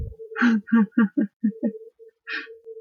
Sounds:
Laughter